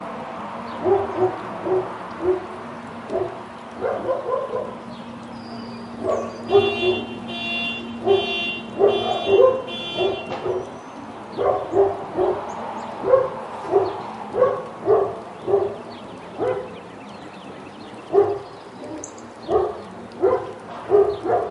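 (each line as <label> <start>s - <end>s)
A dog barks repeatedly in a rhythmic pattern while birds chirp faintly in the distance, creating an outdoor ambiance. 0.7s - 21.5s
A car beeps sharply twice, briefly interrupting the outdoor environment. 7.5s - 10.3s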